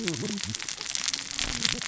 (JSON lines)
{"label": "biophony, cascading saw", "recorder": "SoundTrap 600 or HydroMoth"}